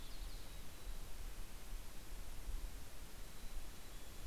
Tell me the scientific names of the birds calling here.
Poecile gambeli, Setophaga coronata, Sitta canadensis